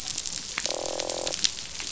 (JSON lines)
{"label": "biophony, croak", "recorder": "SoundTrap 500"}